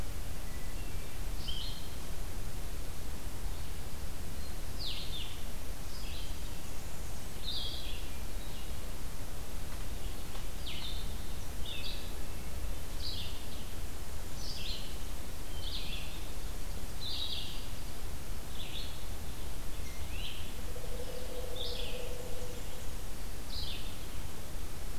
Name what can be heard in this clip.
Blue-headed Vireo, Red-eyed Vireo, Hermit Thrush, Blackburnian Warbler